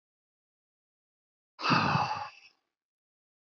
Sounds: Sigh